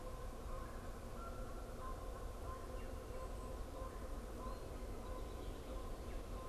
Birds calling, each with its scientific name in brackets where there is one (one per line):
Canada Goose (Branta canadensis)